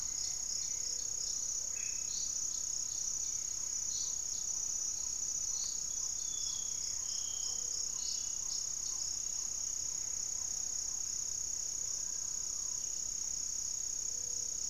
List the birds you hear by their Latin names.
unidentified bird, Leptotila rufaxilla, Taraba major, Formicarius analis, Trogon melanurus, Phlegopsis nigromaculata, Amazona farinosa